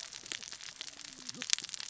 {"label": "biophony, cascading saw", "recorder": "SoundTrap 600 or HydroMoth"}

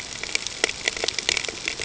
{"label": "ambient", "recorder": "HydroMoth"}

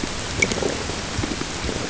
{"label": "ambient", "recorder": "HydroMoth"}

